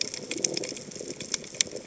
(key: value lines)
label: biophony
recorder: HydroMoth